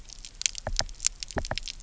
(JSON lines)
{"label": "biophony, knock", "recorder": "SoundTrap 300"}